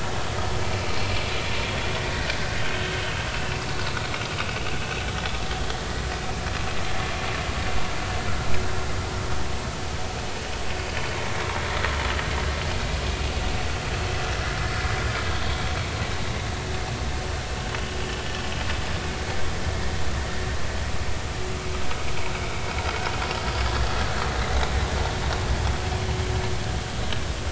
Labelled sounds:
2.7	3.6	vessel noise, 1.5 to 2.8 kHz
22.8	23.1	vessel noise, 1.3 to 1.6 kHz
24.1	24.4	vessel noise, 4.2 to 4.4 kHz

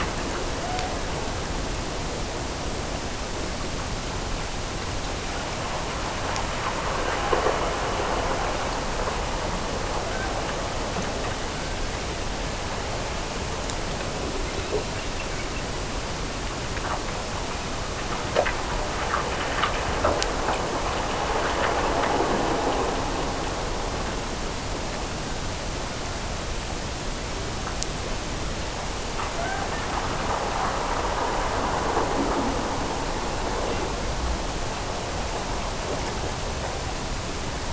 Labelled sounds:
29.3	29.9	killer whale, Bigg's (transient), Gulf of Alaska transient, 0.48 to 1.9 kHz

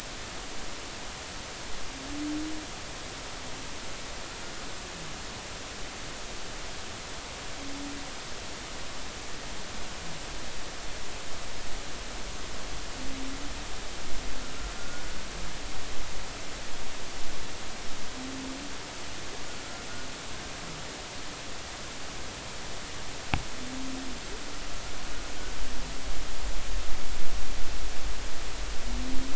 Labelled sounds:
14.8	15.2	humpback whale, 1.4 to 1.5 kHz

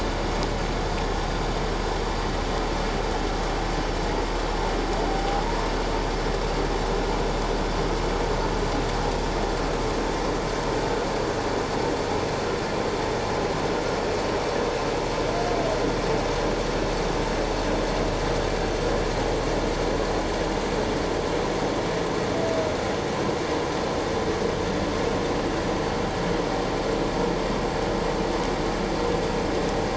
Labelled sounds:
5.1	5.7	humpback whale, 0.78 to 1.1 kHz

